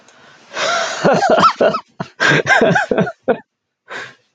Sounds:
Laughter